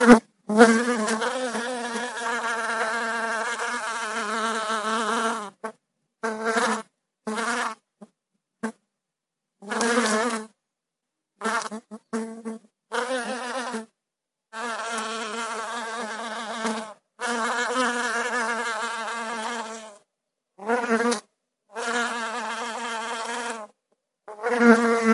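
A single insect buzzing with audible wing flutter while flying around. 0:00.0 - 0:25.1

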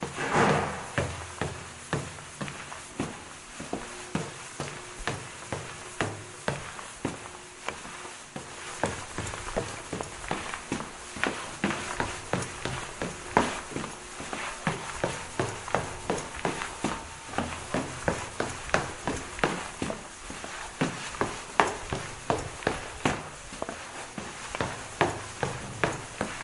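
Footsteps walking then running up concrete stairs. 0:00.3 - 0:26.4

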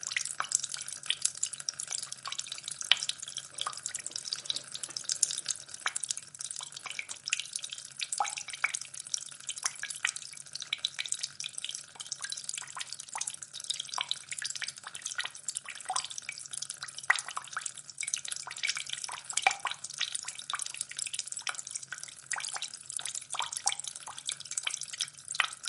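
Water drips loudly from a faucet. 0:00.0 - 0:25.7
Water flows weakly from a tap. 0:00.0 - 0:25.7

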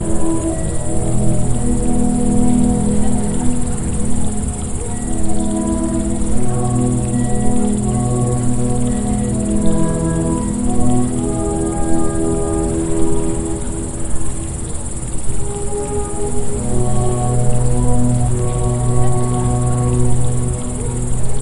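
Heavy music playing in the background. 0:00.1 - 0:21.3
Crickets chirping nearby. 0:00.1 - 0:21.2
People are laughing. 0:02.6 - 0:03.4
Distant faint sound of water flowing. 0:04.8 - 0:21.3
People laughing in the distance. 0:18.8 - 0:19.4

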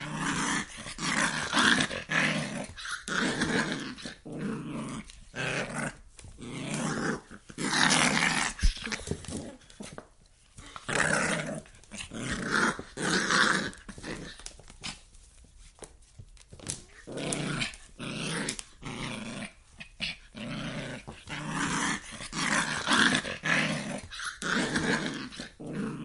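An animal hisses aggressively. 0:00.1 - 0:09.6
An animal hisses aggressively. 0:10.9 - 0:13.8
An animal hisses aggressively. 0:17.1 - 0:26.0

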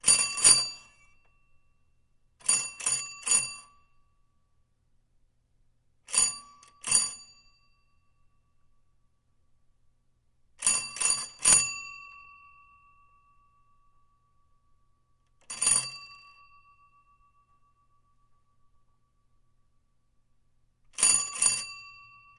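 An old twist doorbell rings loudly and repeatedly. 0:00.0 - 0:00.8
An old twist doorbell rings loudly and repeatedly. 0:02.4 - 0:03.6
An old twist doorbell rings loudly and repeatedly. 0:06.1 - 0:07.2
An old twist doorbell rings loudly and repeatedly. 0:10.6 - 0:12.0
An old twist doorbell ringing loudly. 0:15.5 - 0:16.0
An old twist doorbell rings loudly and repeatedly. 0:21.0 - 0:21.8

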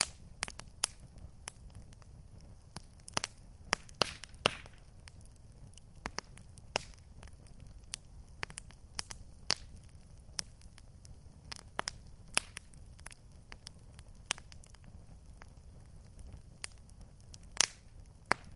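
A fire crackles with popping and crunching noises. 0:00.0 - 0:18.6

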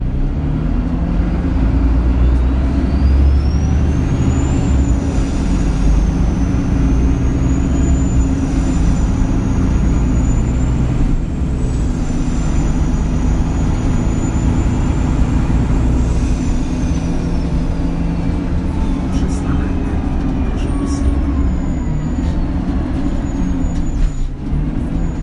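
A heavy truck passes by on the road, clearly changing gears. 0:00.0 - 0:25.2

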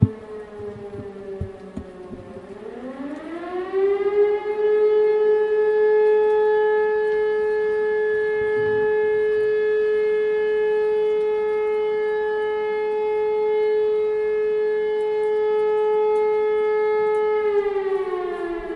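An emergency siren fades away outdoors. 0:00.0 - 0:03.7
An emergency siren sounds steadily and fades away. 0:03.3 - 0:18.8

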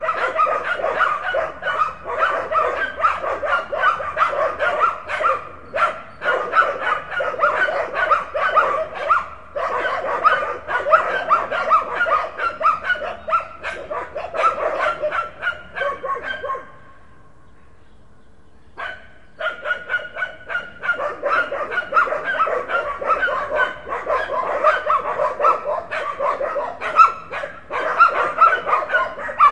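Multiple dogs bark loudly and repeatedly. 0:00.0 - 0:16.7
A dog barks loudly. 0:18.7 - 0:19.1
Multiple dogs bark loudly and repeatedly. 0:19.3 - 0:29.5

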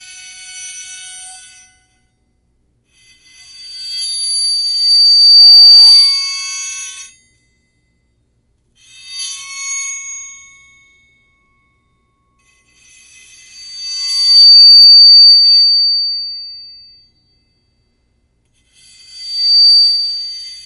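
A technical feedback noise with a metallic quality is heard and fades out. 0:00.0 - 0:01.8
Technical feedback with a loud metallic noise fades in and then fades out. 0:03.0 - 0:07.2
Technical feedback with a metallic noise fades in, becomes loud, and then fades out. 0:08.7 - 0:11.6
Technical feedback with a loud metallic noise fades in and then fades out. 0:12.6 - 0:17.2
Technical feedback with a metallic noise fades in, becomes loud, and then fades out. 0:18.6 - 0:20.7

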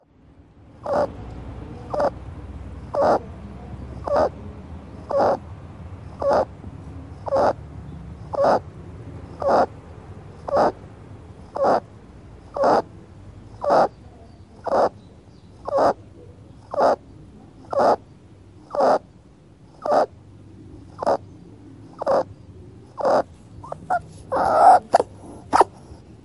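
A rabbit squeaks painfully in a rhythmic pattern. 0:00.0 - 0:26.2
Several people are having a muffled conversation. 0:00.0 - 0:26.2

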